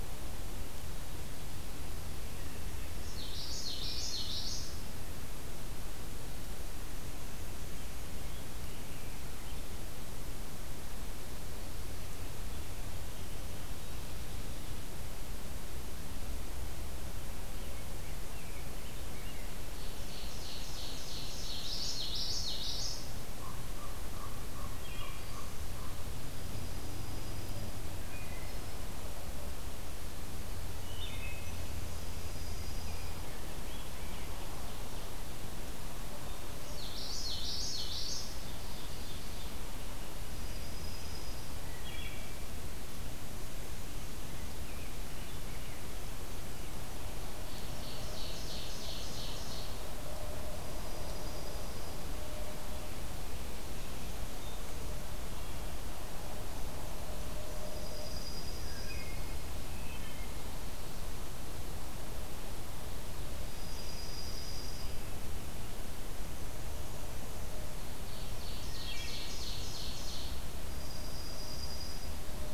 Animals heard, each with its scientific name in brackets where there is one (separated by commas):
Wood Thrush (Hylocichla mustelina), American Robin (Turdus migratorius), Common Yellowthroat (Geothlypis trichas), Common Raven (Corvus corax), Ovenbird (Seiurus aurocapilla), Dark-eyed Junco (Junco hyemalis)